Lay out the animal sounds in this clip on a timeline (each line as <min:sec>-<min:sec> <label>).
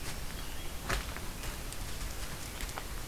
0:00.2-0:00.8 American Robin (Turdus migratorius)